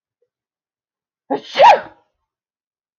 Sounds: Sneeze